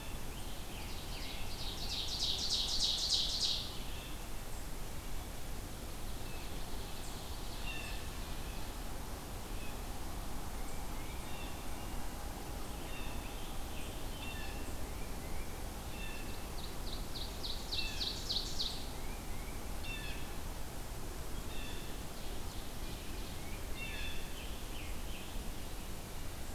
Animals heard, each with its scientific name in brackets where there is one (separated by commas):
Ovenbird (Seiurus aurocapilla), Scarlet Tanager (Piranga olivacea), Red-eyed Vireo (Vireo olivaceus), Blue Jay (Cyanocitta cristata), Tufted Titmouse (Baeolophus bicolor)